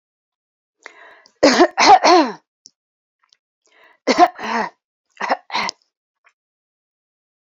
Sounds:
Throat clearing